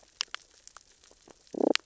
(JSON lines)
{"label": "biophony, damselfish", "recorder": "SoundTrap 600 or HydroMoth"}